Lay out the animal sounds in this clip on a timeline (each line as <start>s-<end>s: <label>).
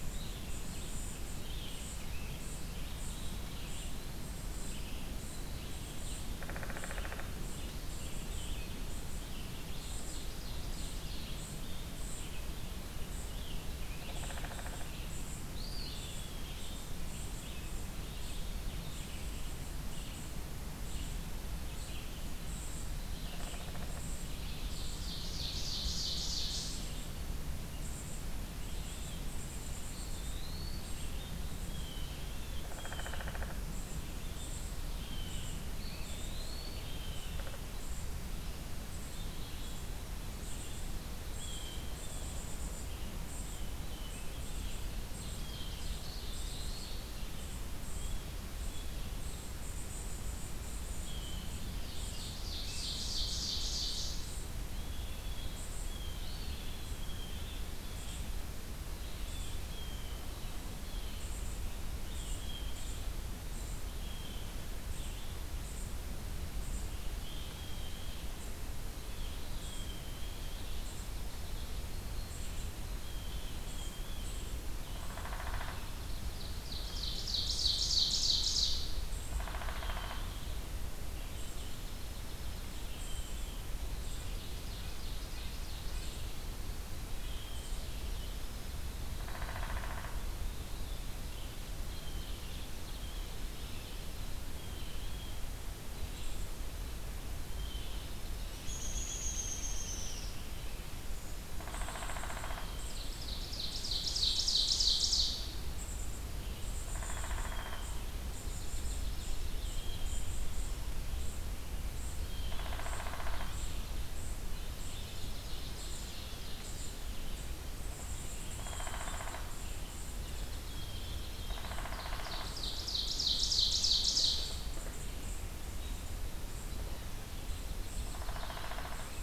0.0s-6.2s: unidentified call
0.0s-63.3s: Red-eyed Vireo (Vireo olivaceus)
6.3s-7.3s: Downy Woodpecker (Dryobates pubescens)
6.7s-63.9s: unidentified call
9.5s-11.3s: Ovenbird (Seiurus aurocapilla)
12.0s-15.1s: Rose-breasted Grosbeak (Pheucticus ludovicianus)
13.9s-14.9s: Downy Woodpecker (Dryobates pubescens)
15.5s-16.3s: Eastern Wood-Pewee (Contopus virens)
23.0s-24.0s: Downy Woodpecker (Dryobates pubescens)
24.6s-26.9s: Ovenbird (Seiurus aurocapilla)
29.8s-31.0s: Eastern Wood-Pewee (Contopus virens)
31.6s-33.3s: Blue Jay (Cyanocitta cristata)
32.4s-33.7s: Downy Woodpecker (Dryobates pubescens)
34.9s-35.6s: Blue Jay (Cyanocitta cristata)
35.6s-37.0s: Eastern Wood-Pewee (Contopus virens)
36.8s-37.5s: Blue Jay (Cyanocitta cristata)
40.9s-51.6s: Blue Jay (Cyanocitta cristata)
44.9s-47.4s: Ovenbird (Seiurus aurocapilla)
46.0s-47.0s: Eastern Wood-Pewee (Contopus virens)
51.7s-54.2s: Ovenbird (Seiurus aurocapilla)
54.7s-70.5s: Blue Jay (Cyanocitta cristata)
56.0s-56.6s: Eastern Wood-Pewee (Contopus virens)
64.8s-120.0s: Red-eyed Vireo (Vireo olivaceus)
64.8s-122.9s: unidentified call
70.8s-72.0s: Dark-eyed Junco (Junco hyemalis)
71.7s-74.4s: Blue Jay (Cyanocitta cristata)
74.8s-75.8s: Downy Woodpecker (Dryobates pubescens)
74.9s-76.4s: Dark-eyed Junco (Junco hyemalis)
76.4s-78.8s: Ovenbird (Seiurus aurocapilla)
79.3s-80.3s: Downy Woodpecker (Dryobates pubescens)
79.3s-80.4s: Blue Jay (Cyanocitta cristata)
81.3s-83.1s: Dark-eyed Junco (Junco hyemalis)
82.8s-83.7s: Blue Jay (Cyanocitta cristata)
84.1s-86.2s: Ovenbird (Seiurus aurocapilla)
84.7s-86.2s: Red-breasted Nuthatch (Sitta canadensis)
87.1s-87.9s: Blue Jay (Cyanocitta cristata)
87.1s-88.8s: Dark-eyed Junco (Junco hyemalis)
89.2s-90.1s: Downy Woodpecker (Dryobates pubescens)
91.3s-93.2s: Ovenbird (Seiurus aurocapilla)
91.8s-92.3s: Blue Jay (Cyanocitta cristata)
94.3s-95.4s: Blue Jay (Cyanocitta cristata)
97.4s-98.2s: Blue Jay (Cyanocitta cristata)
98.6s-100.4s: American Robin (Turdus migratorius)
101.5s-102.7s: Downy Woodpecker (Dryobates pubescens)
102.3s-103.1s: Blue Jay (Cyanocitta cristata)
102.8s-105.4s: Ovenbird (Seiurus aurocapilla)
106.7s-107.9s: Downy Woodpecker (Dryobates pubescens)
108.1s-109.7s: Dark-eyed Junco (Junco hyemalis)
109.6s-110.3s: Blue Jay (Cyanocitta cristata)
112.2s-112.8s: Blue Jay (Cyanocitta cristata)
112.4s-113.5s: Downy Woodpecker (Dryobates pubescens)
112.4s-114.2s: Ovenbird (Seiurus aurocapilla)
114.4s-116.3s: Dark-eyed Junco (Junco hyemalis)
115.0s-117.0s: Ovenbird (Seiurus aurocapilla)
118.5s-119.2s: Blue Jay (Cyanocitta cristata)
118.6s-119.4s: Downy Woodpecker (Dryobates pubescens)
120.2s-121.9s: Dark-eyed Junco (Junco hyemalis)
121.5s-122.6s: Downy Woodpecker (Dryobates pubescens)
121.8s-124.6s: Ovenbird (Seiurus aurocapilla)
124.2s-129.2s: unidentified call
125.5s-129.2s: Red-eyed Vireo (Vireo olivaceus)
127.4s-129.2s: Dark-eyed Junco (Junco hyemalis)
128.0s-129.1s: Downy Woodpecker (Dryobates pubescens)